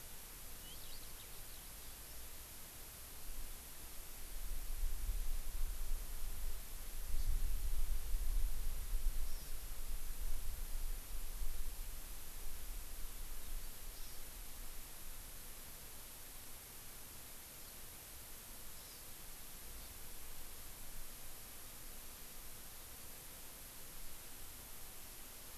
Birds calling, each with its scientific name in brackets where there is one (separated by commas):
Eurasian Skylark (Alauda arvensis), Hawaii Amakihi (Chlorodrepanis virens)